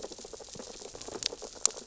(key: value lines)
label: biophony, sea urchins (Echinidae)
recorder: SoundTrap 600 or HydroMoth